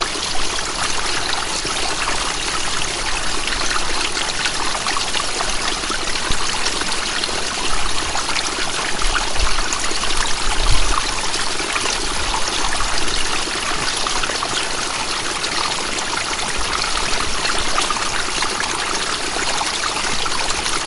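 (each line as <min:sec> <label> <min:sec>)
0:00.0 Water flowing swiftly in a small stream. 0:20.9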